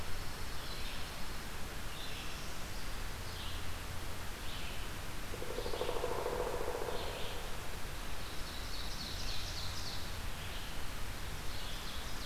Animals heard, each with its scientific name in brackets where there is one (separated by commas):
Ovenbird (Seiurus aurocapilla), Red-eyed Vireo (Vireo olivaceus), Pileated Woodpecker (Dryocopus pileatus), Pine Warbler (Setophaga pinus)